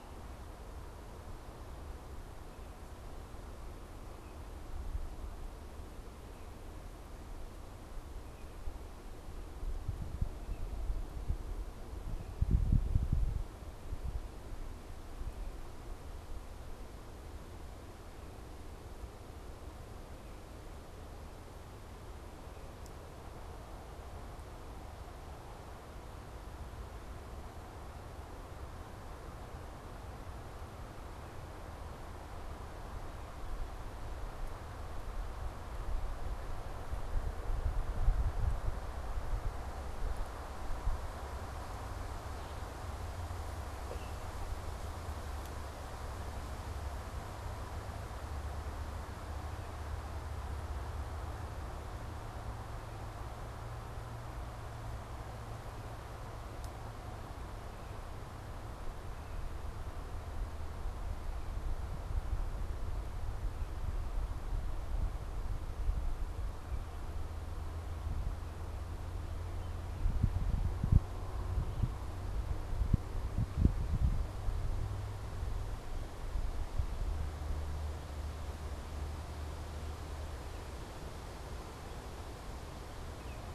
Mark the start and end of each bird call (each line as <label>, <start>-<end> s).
Baltimore Oriole (Icterus galbula), 43.8-44.2 s
Baltimore Oriole (Icterus galbula), 83.0-83.5 s